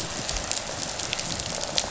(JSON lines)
{"label": "biophony, rattle response", "recorder": "SoundTrap 500"}